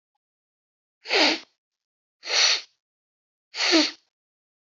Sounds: Sniff